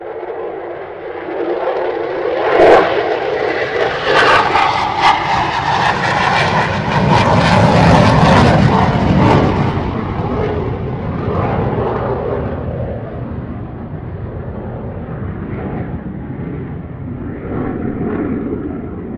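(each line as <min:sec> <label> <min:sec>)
0:00.0 A fighter jet takes off and produces a loud noise. 0:19.2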